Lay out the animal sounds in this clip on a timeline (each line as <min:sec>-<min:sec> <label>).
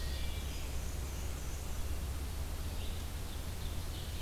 0:00.0-0:00.7 Wood Thrush (Hylocichla mustelina)
0:00.0-0:04.2 Red-eyed Vireo (Vireo olivaceus)
0:00.3-0:01.8 Black-and-white Warbler (Mniotilta varia)
0:03.0-0:04.2 Ovenbird (Seiurus aurocapilla)